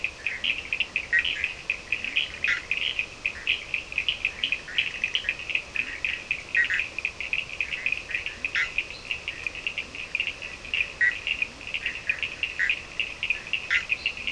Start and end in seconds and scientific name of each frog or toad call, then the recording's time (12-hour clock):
0.0	14.3	Sphaenorhynchus surdus
0.9	6.9	Boana bischoffi
1.8	6.1	Leptodactylus latrans
8.2	12.1	Leptodactylus latrans
8.4	8.9	Boana bischoffi
8.8	9.2	Boana leptolineata
10.8	14.3	Boana bischoffi
13.9	14.3	Boana leptolineata
4:30am